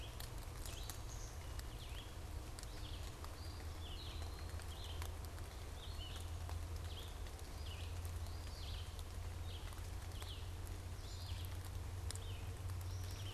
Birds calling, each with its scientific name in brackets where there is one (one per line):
Red-eyed Vireo (Vireo olivaceus)
Eastern Wood-Pewee (Contopus virens)
unidentified bird